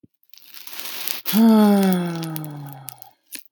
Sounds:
Sigh